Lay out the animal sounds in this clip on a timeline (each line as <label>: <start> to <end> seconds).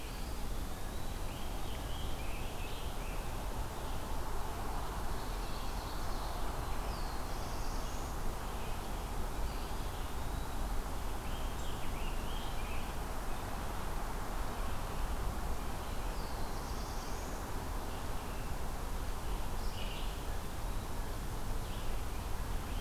Eastern Wood-Pewee (Contopus virens): 0.0 to 1.3 seconds
American Robin (Turdus migratorius): 1.1 to 3.4 seconds
Ovenbird (Seiurus aurocapilla): 5.0 to 6.3 seconds
Black-throated Blue Warbler (Setophaga caerulescens): 6.4 to 8.3 seconds
Eastern Wood-Pewee (Contopus virens): 9.3 to 10.9 seconds
American Robin (Turdus migratorius): 11.1 to 13.0 seconds
Black-throated Blue Warbler (Setophaga caerulescens): 15.7 to 17.6 seconds
Red-eyed Vireo (Vireo olivaceus): 17.8 to 22.8 seconds